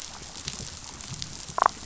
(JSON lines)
{"label": "biophony, damselfish", "recorder": "SoundTrap 500"}